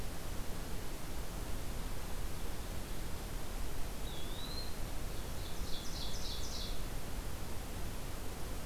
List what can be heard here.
Eastern Wood-Pewee, Ovenbird